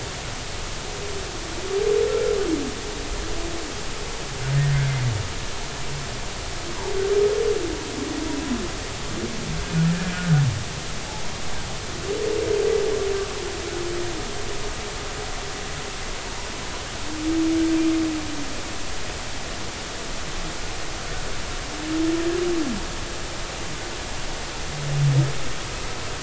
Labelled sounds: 2.1	2.4	humpback whale, 1.3 to 1.4 kHz
9.9	10.2	humpback whale, 1.5 to 1.8 kHz

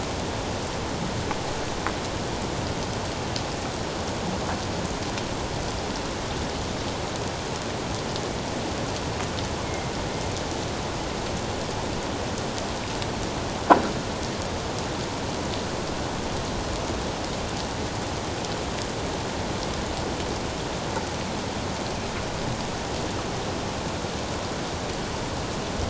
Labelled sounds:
9.6	9.9	killer whale, northern resident, A clan, AA subclan, A04 pod, 2.0 to 2.2 kHz

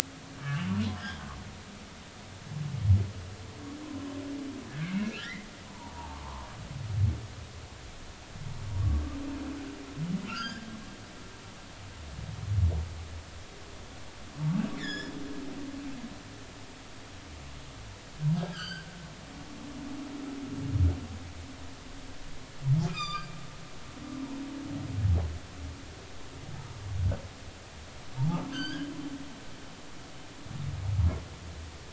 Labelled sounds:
1.0	1.2	humpback whale, 2.9 to 3.5 kHz
4.7	6.5	humpback whale, 0.80 to 3.0 kHz
10.3	10.7	humpback whale, 1.2 to 5.1 kHz
14.8	15.1	humpback whale, 1.5 to 7.1 kHz
18.4	18.9	humpback whale, 1.2 to 4.9 kHz
22.9	23.4	humpback whale, 1.1 to 5.1 kHz
28.5	28.9	humpback whale, 1.5 to 5.1 kHz

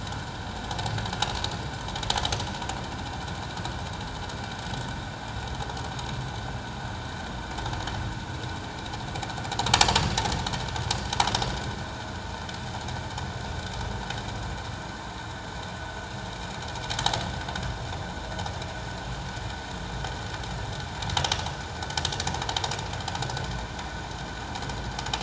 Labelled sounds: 9.7	10.0	vessel noise, 4.5 to 4.9 kHz
21.2	21.5	vessel noise, 2.7 to 3.0 kHz

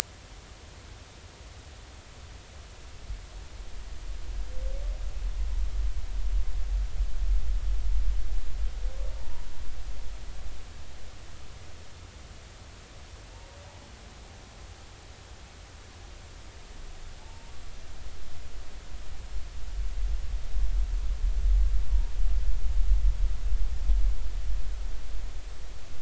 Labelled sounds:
9.2	9.5	humpback whale, 0.83 to 0.99 kHz
17.2	17.5	humpback whale, 0.83 to 0.99 kHz

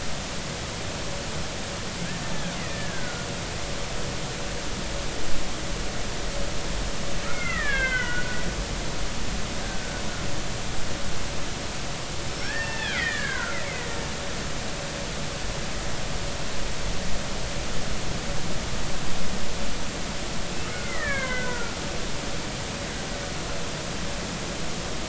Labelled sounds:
2.5	3.3	killer whale, Bigg's (transient), 1.3 to 2.1 kHz
7.2	8.4	killer whale, Bigg's (transient), 1.1 to 3.4 kHz
9.6	9.9	killer whale, Bigg's (transient), 1.5 to 1.7 kHz
12.3	13.9	killer whale, Bigg's (transient), 0.93 to 5.5 kHz
20.7	21.7	killer whale, Bigg's (transient), 1.2 to 2.4 kHz

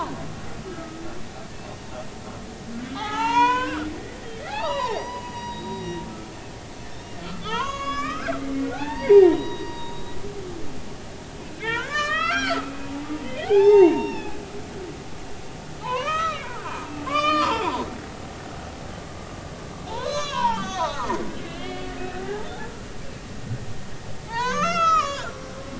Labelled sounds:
0.7	1.0	humpback whale, 1.2 to 1.4 kHz
2.9	4.2	humpback whale, 0.80 to 7.1 kHz
4.5	6.0	humpback whale, 0.80 to 5.9 kHz
7.4	10.2	humpback whale, 0.80 to 7.0 kHz
11.5	14.4	humpback whale, 0.80 to 5.6 kHz
15.8	17.8	humpback whale, 0.83 to 5.5 kHz
18.1	18.5	humpback whale, 2.0 to 2.6 kHz
19.9	22.8	humpback whale, 0.80 to 7.0 kHz
24.3	25.5	humpback whale, 0.80 to 7.2 kHz

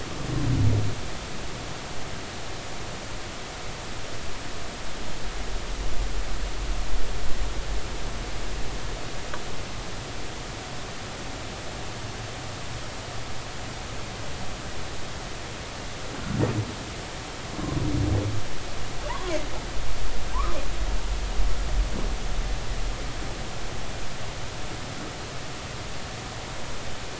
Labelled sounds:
19.1	19.4	humpback whale, 0.83 to 1.2 kHz

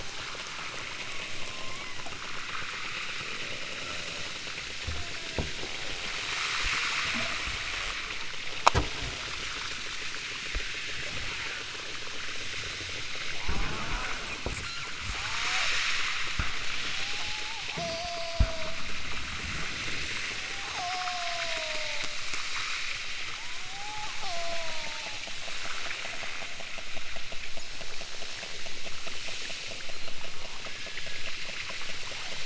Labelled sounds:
1.4	2.0	killer whale, southern Alaska resident, 0.83 to 2.7 kHz
4.8	5.5	killer whale, southern Alaska resident, 0.37 to 2.0 kHz
13.4	15.9	killer whale, southern Alaska resident, 0.18 to 5.9 kHz
16.8	18.8	killer whale, southern Alaska resident, 0.32 to 6.5 kHz
20.6	22.1	killer whale, southern Alaska resident, 0.32 to 6.6 kHz
23.3	25.2	killer whale, southern Alaska resident, 0.30 to 6.7 kHz
30.3	31.4	killer whale, southern Alaska resident, 0.55 to 2.3 kHz

